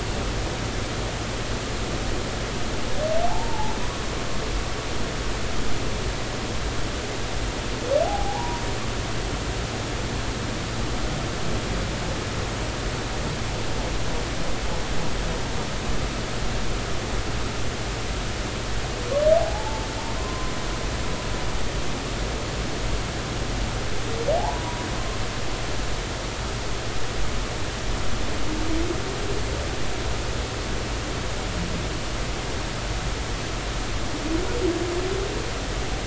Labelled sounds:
3.3	3.7	humpback whale, 0.80 to 1.0 kHz
8.0	8.6	humpback whale, 0.80 to 1.0 kHz
19.4	19.9	humpback whale, 0.80 to 0.93 kHz
20.2	20.5	humpback whale, 0.99 to 1.1 kHz
24.4	24.9	humpback whale, 0.80 to 1.0 kHz

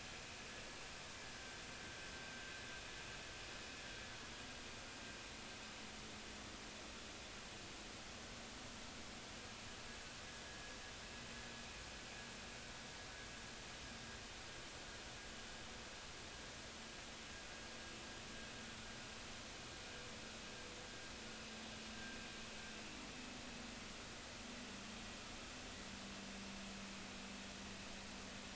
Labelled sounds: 1.3	1.6	vessel noise, 1.5 to 1.6 kHz

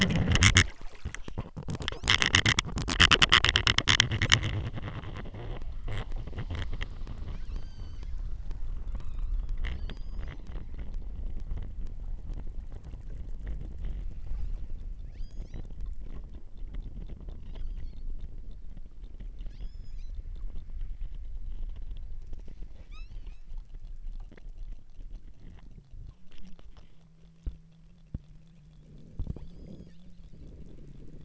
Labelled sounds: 7.6	8.1	killer whale, southern Alaska resident, 1.3 to 8.0 kHz
9.0	10.6	killer whale, southern Alaska resident, 0.82 to 8.0 kHz
15.1	15.8	killer whale, southern Alaska resident, 1.3 to 6.8 kHz
17.4	18.2	killer whale, southern Alaska resident, 1.8 to 6.5 kHz
19.5	20.3	killer whale, southern Alaska resident, 1.4 to 8.0 kHz
22.8	23.6	killer whale, southern Alaska resident, 0.91 to 8.0 kHz
29.2	30.1	killer whale, southern Alaska resident, 2.0 to 8.0 kHz

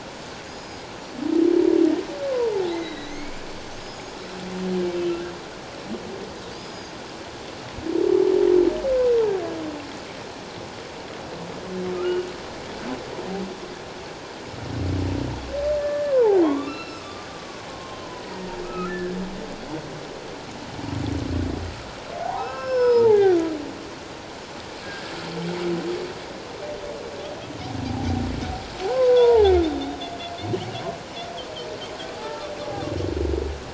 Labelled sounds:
2.3	3.4	humpback whale, 0.81 to 4.0 kHz
3.8	4.1	humpback whale, 4.9 to 6.9 kHz
5.1	5.3	humpback whale, 1.3 to 1.7 kHz
6.5	6.9	humpback whale, 4.6 to 6.8 kHz
11.9	12.3	humpback whale, 1.2 to 1.5 kHz
15.8	17.3	humpback whale, 0.78 to 5.5 kHz
17.7	19.2	humpback whale, 1.0 to 2.0 kHz
22.2	23.4	humpback whale, 0.78 to 5.3 kHz
28.9	30.0	humpback whale, 0.78 to 3.8 kHz
32.1	32.5	humpback whale, 0.78 to 1.4 kHz

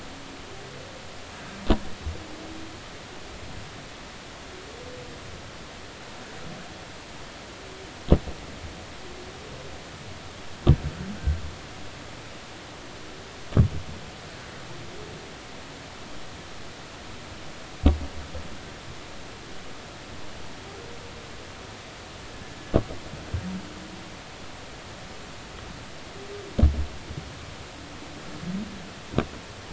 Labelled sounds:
1.3	1.6	humpback whale, 1.5 to 1.7 kHz

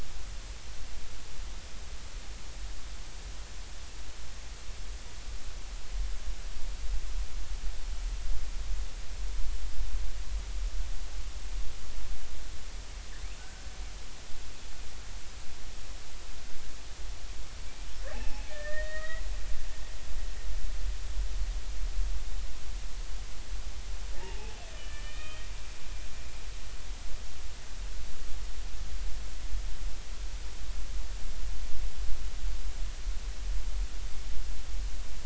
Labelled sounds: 13.4	13.6	killer whale, Bigg's (transient), 1.4 to 1.6 kHz
18.1	19.2	killer whale, Bigg's (transient), 0.80 to 2.8 kHz
24.2	25.4	killer whale, Bigg's (transient), 0.80 to 3.2 kHz

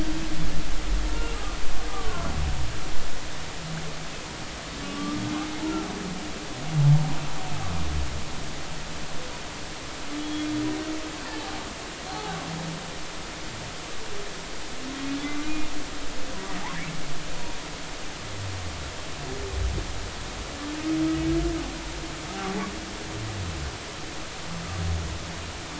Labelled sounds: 1.1	2.3	humpback whale, 0.96 to 1.4 kHz
4.8	5.2	humpback whale, 1.1 to 1.2 kHz
6.8	7.0	humpback whale, 0.83 to 0.99 kHz
10.2	10.5	humpback whale, 3.3 to 3.4 kHz
12.1	12.4	humpback whale, 0.80 to 0.90 kHz
15.2	15.5	humpback whale, 1.1 to 1.2 kHz

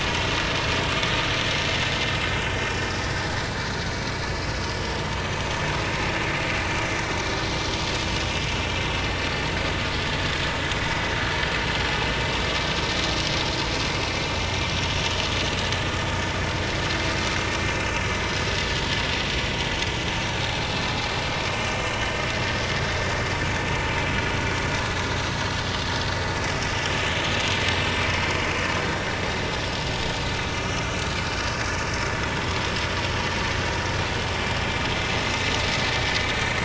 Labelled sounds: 21.9	22.2	vessel noise, 2.8 to 3.1 kHz
29.5	29.8	vessel noise, 5.1 to 5.2 kHz
32.2	32.6	vessel noise, 3.2 to 3.5 kHz

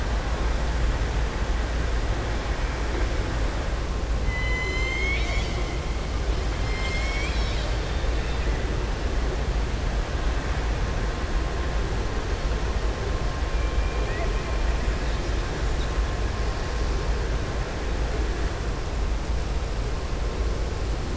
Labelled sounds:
4.2	5.6	killer whale, southern resident, 2.0 to 7.4 kHz

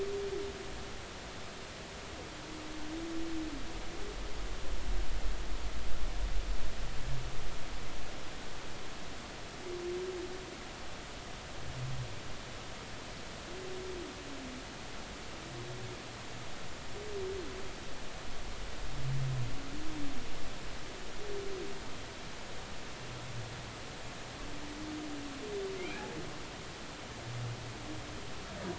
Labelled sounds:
25.8	26.0	humpback whale, 2.0 to 2.6 kHz

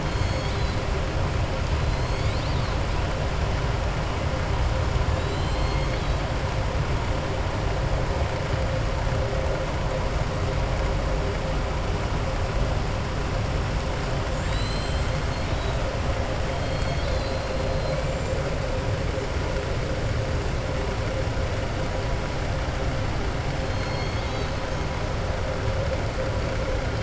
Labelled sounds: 0.0	0.8	killer whale, southern resident, 3.1 to 4.7 kHz
5.1	6.2	killer whale, southern resident, 2.2 to 7.5 kHz
14.2	15.8	killer whale, southern resident, 1.8 to 7.7 kHz
16.5	17.4	killer whale, southern resident, 3.2 to 4.8 kHz
23.6	24.5	killer whale, southern resident, 2.1 to 5.4 kHz

